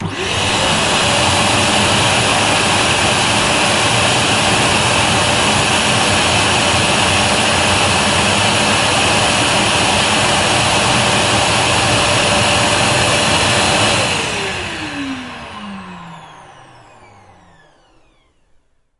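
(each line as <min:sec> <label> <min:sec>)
0:00.0 A vacuum cleaner buzzes steadily. 0:17.9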